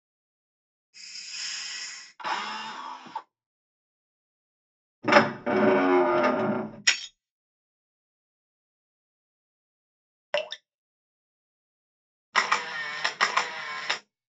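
At 0.93 seconds, there is hissing. Then, at 2.18 seconds, you can hear a drill. Later, at 5.02 seconds, a wooden door opens. Next, at 6.84 seconds, glass shatters. Following that, at 10.32 seconds, dripping is heard. Then, at 12.32 seconds, the sound of a camera is heard.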